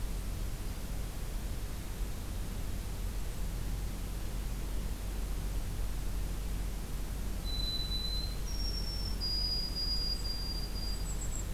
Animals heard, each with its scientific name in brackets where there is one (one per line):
White-throated Sparrow (Zonotrichia albicollis)
Golden-crowned Kinglet (Regulus satrapa)